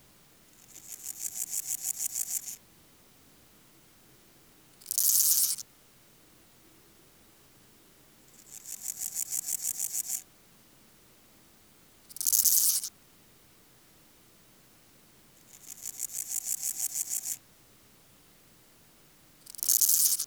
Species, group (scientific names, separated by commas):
Pseudochorthippus parallelus, Orthoptera